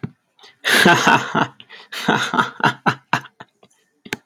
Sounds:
Laughter